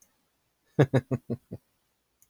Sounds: Laughter